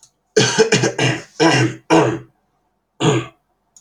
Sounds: Cough